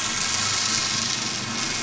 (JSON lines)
{"label": "anthrophony, boat engine", "recorder": "SoundTrap 500"}